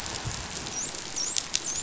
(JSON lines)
{"label": "biophony, dolphin", "recorder": "SoundTrap 500"}